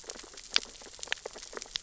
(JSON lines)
{"label": "biophony, sea urchins (Echinidae)", "recorder": "SoundTrap 600 or HydroMoth"}